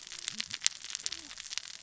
{"label": "biophony, cascading saw", "recorder": "SoundTrap 600 or HydroMoth"}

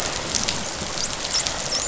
{"label": "biophony, dolphin", "recorder": "SoundTrap 500"}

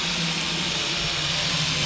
{"label": "anthrophony, boat engine", "recorder": "SoundTrap 500"}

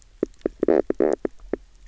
{"label": "biophony, knock croak", "recorder": "SoundTrap 300"}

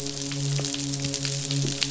{"label": "biophony, midshipman", "recorder": "SoundTrap 500"}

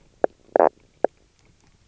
{"label": "biophony, knock croak", "recorder": "SoundTrap 300"}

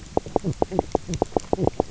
{"label": "biophony, knock croak", "recorder": "SoundTrap 300"}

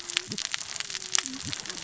{"label": "biophony, cascading saw", "recorder": "SoundTrap 600 or HydroMoth"}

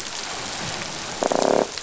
{"label": "biophony", "recorder": "SoundTrap 500"}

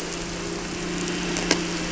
{"label": "anthrophony, boat engine", "recorder": "SoundTrap 300"}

